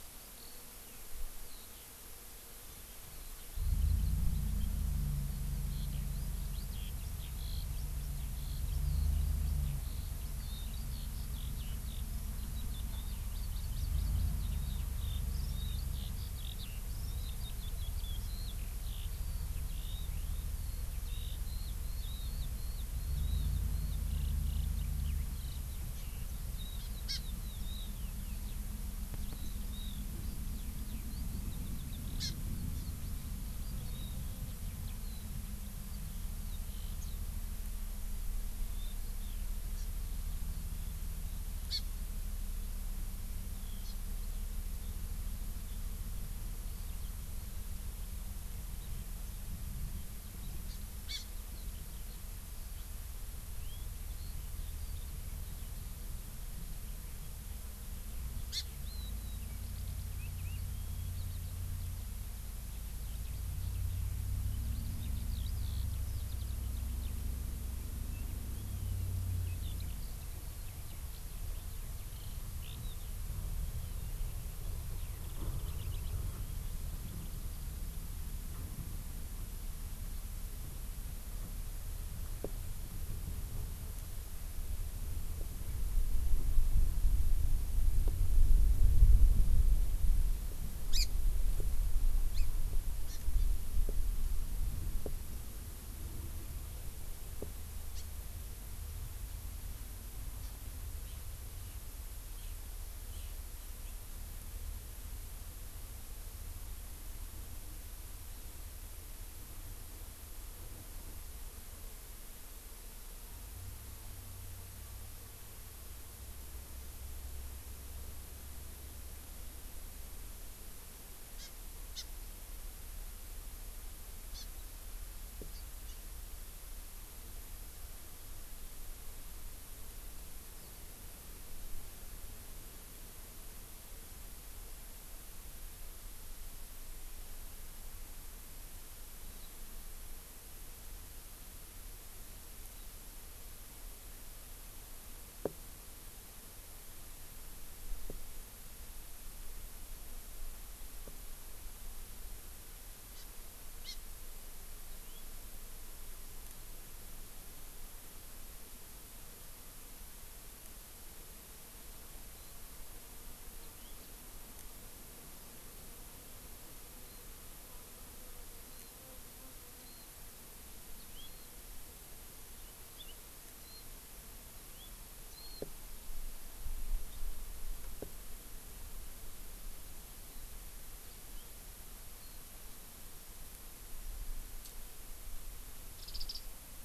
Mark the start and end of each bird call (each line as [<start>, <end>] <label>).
[0.00, 37.28] Eurasian Skylark (Alauda arvensis)
[13.28, 14.48] Hawaii Amakihi (Chlorodrepanis virens)
[27.08, 27.18] Hawaii Amakihi (Chlorodrepanis virens)
[32.18, 32.38] Hawaii Amakihi (Chlorodrepanis virens)
[32.68, 32.88] Hawaii Amakihi (Chlorodrepanis virens)
[38.68, 39.48] Eurasian Skylark (Alauda arvensis)
[39.78, 39.88] Hawaii Amakihi (Chlorodrepanis virens)
[41.68, 41.78] Hawaii Amakihi (Chlorodrepanis virens)
[43.48, 55.68] Eurasian Skylark (Alauda arvensis)
[43.78, 43.98] Hawaii Amakihi (Chlorodrepanis virens)
[50.68, 50.78] Hawaii Amakihi (Chlorodrepanis virens)
[51.08, 51.28] Hawaii Amakihi (Chlorodrepanis virens)
[58.48, 58.68] Hawaii Amakihi (Chlorodrepanis virens)
[58.78, 77.38] Eurasian Skylark (Alauda arvensis)
[90.88, 91.08] Hawaii Amakihi (Chlorodrepanis virens)
[92.38, 92.48] Hawaii Amakihi (Chlorodrepanis virens)
[93.08, 93.48] Hawaii Amakihi (Chlorodrepanis virens)
[97.98, 98.08] House Finch (Haemorhous mexicanus)
[100.38, 100.58] Hawaii Amakihi (Chlorodrepanis virens)
[121.38, 121.48] Hawaii Amakihi (Chlorodrepanis virens)
[121.88, 122.08] Hawaii Amakihi (Chlorodrepanis virens)
[124.28, 124.48] Hawaii Amakihi (Chlorodrepanis virens)
[125.48, 125.98] Hawaii Amakihi (Chlorodrepanis virens)
[130.48, 130.68] House Finch (Haemorhous mexicanus)
[139.28, 139.48] House Finch (Haemorhous mexicanus)
[153.08, 153.28] Hawaii Amakihi (Chlorodrepanis virens)
[153.78, 153.98] Hawaii Amakihi (Chlorodrepanis virens)
[154.78, 155.18] House Finch (Haemorhous mexicanus)
[162.38, 162.58] Warbling White-eye (Zosterops japonicus)
[163.58, 163.98] House Finch (Haemorhous mexicanus)
[166.98, 167.28] Warbling White-eye (Zosterops japonicus)
[168.68, 168.98] Warbling White-eye (Zosterops japonicus)
[169.78, 170.08] Warbling White-eye (Zosterops japonicus)
[170.88, 171.28] House Finch (Haemorhous mexicanus)
[171.28, 171.48] Warbling White-eye (Zosterops japonicus)
[172.58, 173.18] House Finch (Haemorhous mexicanus)
[173.58, 173.88] Warbling White-eye (Zosterops japonicus)
[174.58, 174.88] House Finch (Haemorhous mexicanus)
[175.28, 175.68] Warbling White-eye (Zosterops japonicus)
[180.18, 180.48] Hawaii Amakihi (Chlorodrepanis virens)
[182.18, 182.38] Warbling White-eye (Zosterops japonicus)
[185.88, 186.48] Warbling White-eye (Zosterops japonicus)